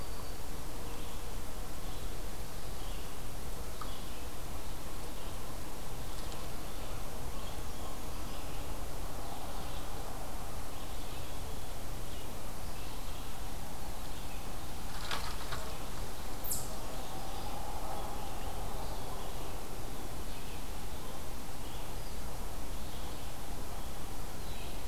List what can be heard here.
Black-throated Green Warbler, Red-eyed Vireo, Brown Creeper, Eastern Chipmunk